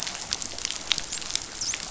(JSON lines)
{"label": "biophony, dolphin", "recorder": "SoundTrap 500"}